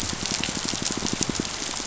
{"label": "biophony, pulse", "recorder": "SoundTrap 500"}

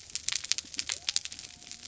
{"label": "biophony", "recorder": "SoundTrap 300"}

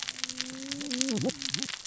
{"label": "biophony, cascading saw", "recorder": "SoundTrap 600 or HydroMoth"}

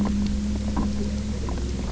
{"label": "anthrophony, boat engine", "recorder": "SoundTrap 300"}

